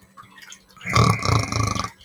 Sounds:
Throat clearing